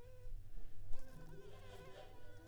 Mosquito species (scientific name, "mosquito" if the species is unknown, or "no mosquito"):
Anopheles arabiensis